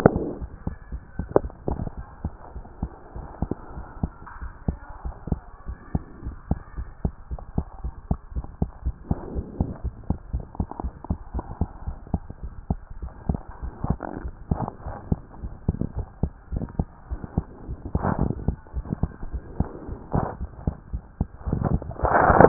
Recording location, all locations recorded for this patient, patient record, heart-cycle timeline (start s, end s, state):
pulmonary valve (PV)
aortic valve (AV)+pulmonary valve (PV)+tricuspid valve (TV)+mitral valve (MV)
#Age: Child
#Sex: Male
#Height: nan
#Weight: nan
#Pregnancy status: False
#Murmur: Present
#Murmur locations: mitral valve (MV)+pulmonary valve (PV)+tricuspid valve (TV)
#Most audible location: mitral valve (MV)
#Systolic murmur timing: Holosystolic
#Systolic murmur shape: Plateau
#Systolic murmur grading: I/VI
#Systolic murmur pitch: Low
#Systolic murmur quality: Blowing
#Diastolic murmur timing: nan
#Diastolic murmur shape: nan
#Diastolic murmur grading: nan
#Diastolic murmur pitch: nan
#Diastolic murmur quality: nan
#Outcome: Normal
#Campaign: 2014 screening campaign
0.00	4.42	unannotated
4.42	4.52	S1
4.52	4.66	systole
4.66	4.76	S2
4.76	5.04	diastole
5.04	5.14	S1
5.14	5.30	systole
5.30	5.40	S2
5.40	5.68	diastole
5.68	5.78	S1
5.78	5.94	systole
5.94	6.02	S2
6.02	6.24	diastole
6.24	6.36	S1
6.36	6.50	systole
6.50	6.58	S2
6.58	6.78	diastole
6.78	6.88	S1
6.88	7.04	systole
7.04	7.14	S2
7.14	7.30	diastole
7.30	7.40	S1
7.40	7.56	systole
7.56	7.66	S2
7.66	7.84	diastole
7.84	7.94	S1
7.94	8.08	systole
8.08	8.18	S2
8.18	8.34	diastole
8.34	8.46	S1
8.46	8.60	systole
8.60	8.70	S2
8.70	8.84	diastole
8.84	8.94	S1
8.94	9.08	systole
9.08	9.18	S2
9.18	9.34	diastole
9.34	9.46	S1
9.46	9.58	systole
9.58	9.70	S2
9.70	9.84	diastole
9.84	9.94	S1
9.94	10.08	systole
10.08	10.18	S2
10.18	10.32	diastole
10.32	10.44	S1
10.44	10.58	systole
10.58	10.68	S2
10.68	10.82	diastole
10.82	10.94	S1
10.94	11.08	systole
11.08	11.18	S2
11.18	11.34	diastole
11.34	11.44	S1
11.44	11.60	systole
11.60	11.68	S2
11.68	11.86	diastole
11.86	11.96	S1
11.96	12.12	systole
12.12	12.22	S2
12.22	12.42	diastole
12.42	12.52	S1
12.52	12.68	systole
12.68	12.78	S2
12.78	12.98	diastole
12.98	22.48	unannotated